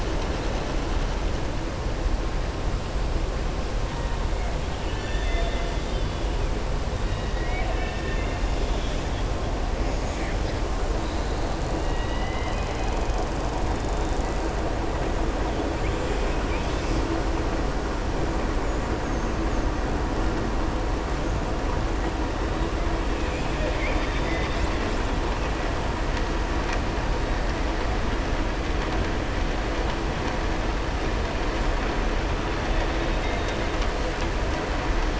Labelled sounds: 4.7	6.2	killer whale, southern resident, 1.5 to 4.4 kHz
7.0	8.4	killer whale, southern resident, 1.7 to 3.8 kHz
11.8	12.9	killer whale, southern resident, 1.7 to 3.9 kHz

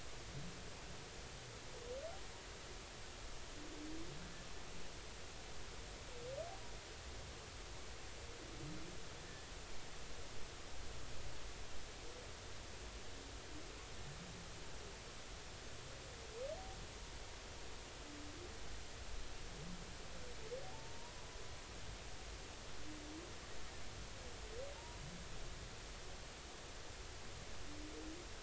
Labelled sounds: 20.7	21.1	humpback whale, 0.83 to 1.1 kHz

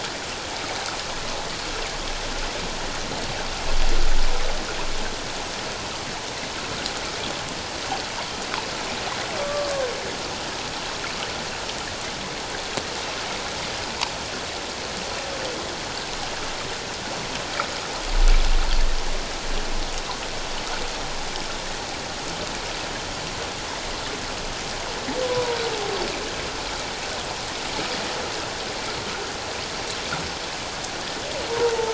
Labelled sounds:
9.4	9.7	humpback whale, 1.1 to 1.2 kHz
25.2	25.6	humpback whale, 0.91 to 1.2 kHz
31.5	31.9	humpback whale, 0.84 to 1.1 kHz

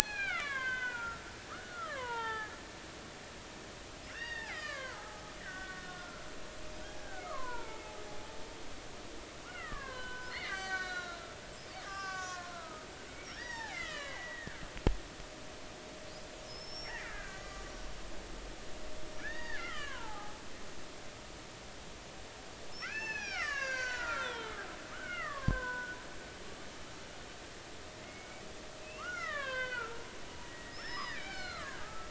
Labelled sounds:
0.0	2.5	killer whale, Bigg's (transient), 0.80 to 6.0 kHz
4.1	6.2	killer whale, Bigg's (transient), 0.80 to 4.8 kHz
7.0	8.0	killer whale, Bigg's (transient), 0.80 to 2.4 kHz
9.4	11.2	killer whale, Bigg's (transient), 0.96 to 7.7 kHz
11.8	14.6	killer whale, Bigg's (transient), 0.80 to 7.2 kHz
16.4	18.0	killer whale, Bigg's (transient), 1.1 to 5.9 kHz
19.2	20.4	killer whale, Bigg's (transient), 0.80 to 4.8 kHz
22.8	24.6	killer whale, Bigg's (transient), 0.83 to 7.3 kHz
24.9	26.0	killer whale, Bigg's (transient), 0.93 to 2.3 kHz
28.0	28.4	killer whale, Bigg's (transient), 2.0 to 2.3 kHz
28.8	30.0	killer whale, Bigg's (transient), 0.90 to 5.9 kHz
30.4	32.0	killer whale, Bigg's (transient), 0.99 to 5.5 kHz

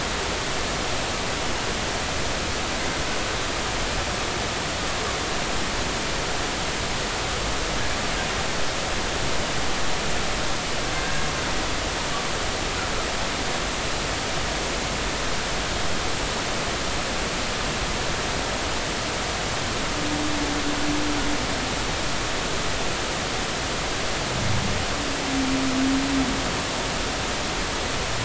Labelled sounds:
11.0	11.3	humpback whale, 1.6 to 1.7 kHz

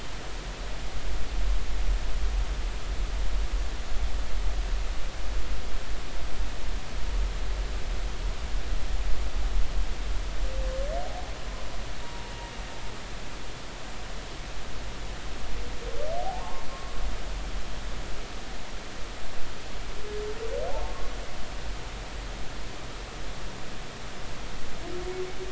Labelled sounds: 12.0	12.3	humpback whale, 0.86 to 0.99 kHz
16.2	17.0	humpback whale, 0.80 to 1.2 kHz
20.8	21.1	humpback whale, 1.0 to 1.2 kHz

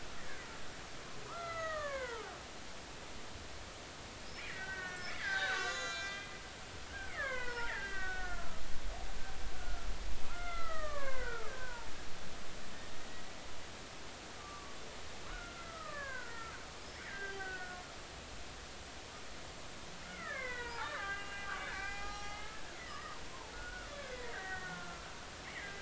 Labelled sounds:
1.3	2.3	killer whale, Bigg's (transient), 0.86 to 4.2 kHz
4.5	6.3	killer whale, Bigg's (transient), 1.1 to 7.9 kHz
7.1	8.6	killer whale, Bigg's (transient), 0.83 to 2.8 kHz
9.6	11.9	killer whale, Bigg's (transient), 0.86 to 2.4 kHz
14.4	17.8	killer whale, Bigg's (transient), 0.96 to 3.2 kHz
20.0	22.6	killer whale, Bigg's (transient), 0.80 to 7.0 kHz
22.9	23.2	killer whale, Bigg's (transient), 1.7 to 2.0 kHz
23.5	25.8	killer whale, Bigg's (transient), 1.0 to 2.3 kHz

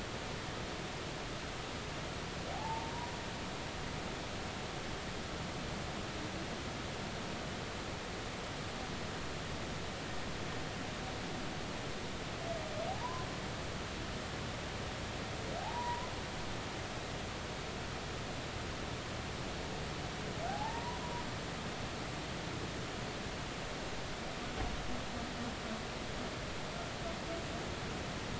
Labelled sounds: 2.5	3.1	humpback whale, 0.80 to 1.0 kHz
12.9	13.3	humpback whale, 0.80 to 1.2 kHz
15.6	16.1	humpback whale, 0.80 to 1.1 kHz
20.5	21.2	humpback whale, 0.80 to 1.1 kHz

